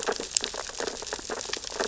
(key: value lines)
label: biophony, sea urchins (Echinidae)
recorder: SoundTrap 600 or HydroMoth